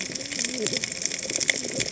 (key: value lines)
label: biophony, cascading saw
recorder: HydroMoth